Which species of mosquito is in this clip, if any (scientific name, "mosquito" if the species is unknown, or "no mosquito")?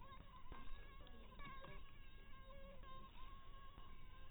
mosquito